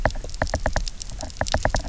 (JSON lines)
{"label": "biophony, knock", "recorder": "SoundTrap 300"}